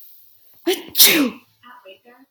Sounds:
Sneeze